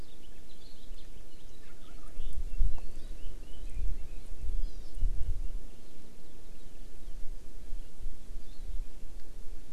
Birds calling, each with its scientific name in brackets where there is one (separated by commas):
House Finch (Haemorhous mexicanus), Red-billed Leiothrix (Leiothrix lutea), Hawaii Amakihi (Chlorodrepanis virens)